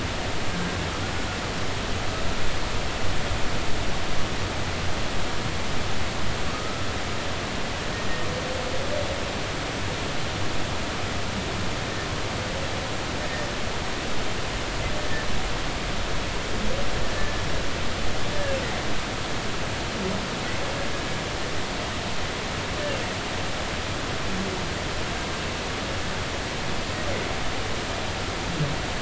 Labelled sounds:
6.5	6.9	humpback whale, 1.2 to 1.4 kHz

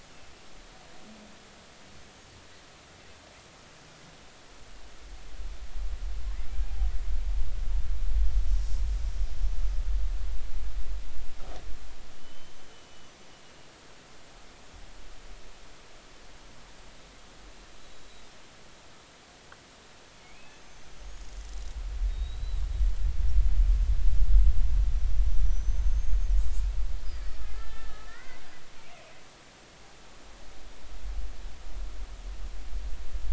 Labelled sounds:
12.2	13.1	killer whale, Bigg's (transient), 2.9 to 6.2 kHz
17.8	18.3	killer whale, Bigg's (transient), 3.8 to 4.0 kHz
20.2	21.3	killer whale, Bigg's (transient), 2.1 to 6.8 kHz
22.1	22.6	killer whale, Bigg's (transient), 3.7 to 4.1 kHz
25.4	26.2	killer whale, Bigg's (transient), 5.9 to 6.6 kHz
27.4	29.1	killer whale, Bigg's (transient), 0.99 to 2.9 kHz

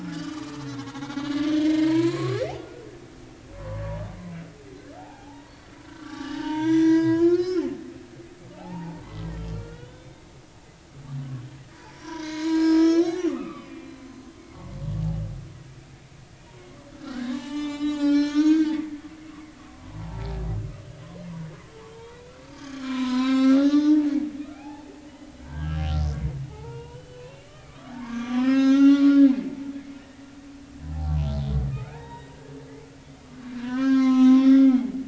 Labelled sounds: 0.0	2.9	humpback whale, 0.90 to 4.1 kHz
3.5	3.8	humpback whale, 0.93 to 1.2 kHz
5.0	7.7	humpback whale, 0.80 to 7.1 kHz
8.5	9.0	humpback whale, 0.80 to 0.99 kHz
9.5	10.2	humpback whale, 1.3 to 3.8 kHz
12.0	14.0	humpback whale, 0.90 to 5.9 kHz
16.9	18.7	humpback whale, 0.80 to 7.5 kHz
19.3	20.3	humpback whale, 0.80 to 1.2 kHz
22.1	22.4	humpback whale, 2.3 to 2.6 kHz
22.7	24.1	humpback whale, 0.80 to 7.6 kHz
24.5	24.9	humpback whale, 0.80 to 2.7 kHz
25.4	25.9	humpback whale, 1.5 to 1.7 kHz
26.5	29.2	humpback whale, 0.80 to 6.6 kHz
30.9	32.3	humpback whale, 0.80 to 3.9 kHz
33.5	35.0	humpback whale, 0.80 to 6.8 kHz

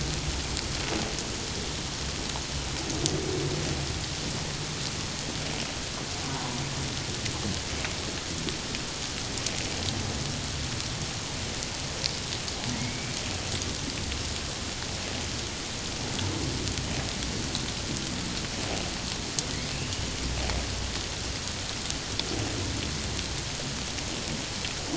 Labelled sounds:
6.2	6.6	humpback whale, 0.88 to 1.2 kHz
12.8	13.1	humpback whale, 2.1 to 2.3 kHz
19.7	20.1	humpback whale, 2.6 to 3.1 kHz

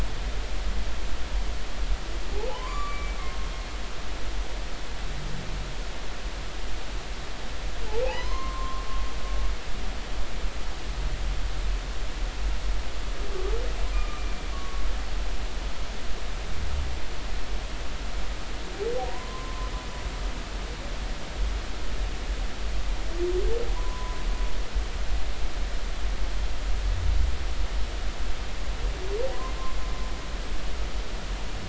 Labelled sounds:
2.5	3.2	humpback whale, 0.80 to 2.4 kHz
8.0	8.8	humpback whale, 0.80 to 5.2 kHz
13.9	14.8	humpback whale, 1.1 to 1.2 kHz
19.1	19.7	humpback whale, 0.90 to 1.1 kHz
23.8	24.2	humpback whale, 0.93 to 1.1 kHz

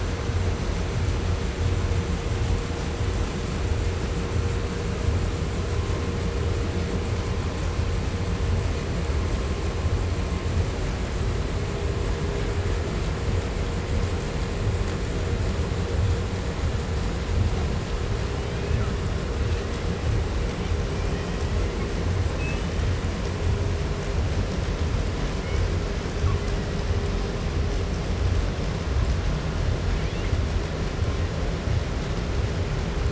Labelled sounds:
18.1	19.0	killer whale, 0.84 to 3.7 kHz
20.4	22.1	killer whale, 0.90 to 6.9 kHz
22.3	23.1	killer whale, 2.2 to 5.8 kHz
25.2	25.9	killer whale, 0.94 to 3.5 kHz
26.2	27.2	killer whale, 0.80 to 3.0 kHz
29.8	30.5	killer whale, 1.2 to 4.2 kHz

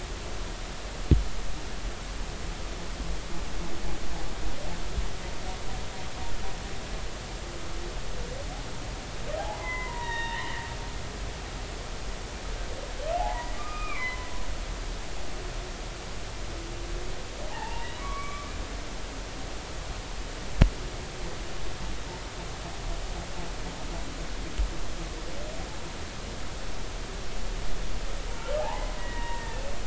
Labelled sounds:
9.4	10.6	humpback whale, 0.80 to 3.8 kHz
13.2	14.3	humpback whale, 0.80 to 2.5 kHz
17.5	18.5	humpback whale, 0.80 to 2.4 kHz
28.3	29.6	humpback whale, 0.80 to 2.0 kHz

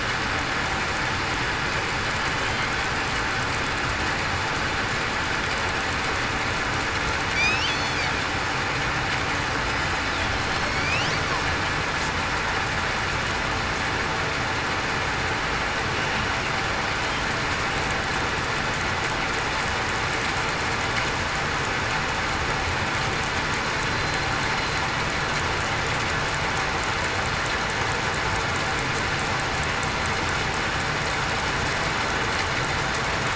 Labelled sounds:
7.3	7.7	killer whale, southern resident, 2.3 to 3.2 kHz
10.5	10.9	killer whale, southern resident, 4.2 to 4.7 kHz

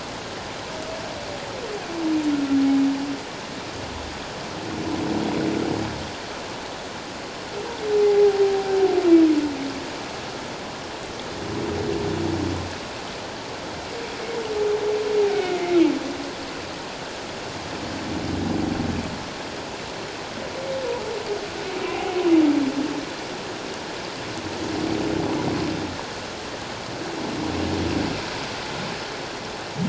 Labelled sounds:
8.0	8.8	humpback whale, 0.78 to 0.88 kHz
15.3	15.8	humpback whale, 1.4 to 2.3 kHz

